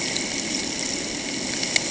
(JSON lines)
{"label": "ambient", "recorder": "HydroMoth"}